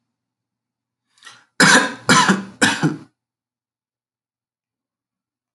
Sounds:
Cough